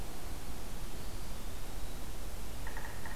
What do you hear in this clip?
Eastern Wood-Pewee, Yellow-bellied Sapsucker